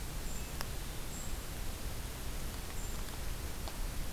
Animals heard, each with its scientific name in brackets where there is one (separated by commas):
Hermit Thrush (Catharus guttatus), Golden-crowned Kinglet (Regulus satrapa)